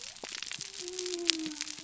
{"label": "biophony", "recorder": "SoundTrap 300"}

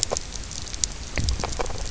{"label": "biophony, grazing", "recorder": "SoundTrap 300"}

